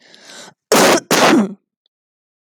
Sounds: Cough